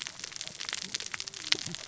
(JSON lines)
{"label": "biophony, cascading saw", "recorder": "SoundTrap 600 or HydroMoth"}